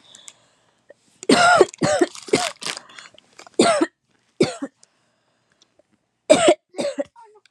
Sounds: Cough